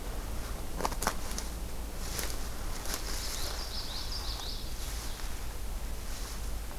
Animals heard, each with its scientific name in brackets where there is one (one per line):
Common Yellowthroat (Geothlypis trichas)